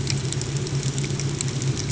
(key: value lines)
label: ambient
recorder: HydroMoth